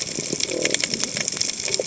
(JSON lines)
{"label": "biophony", "recorder": "HydroMoth"}